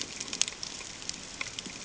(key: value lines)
label: ambient
recorder: HydroMoth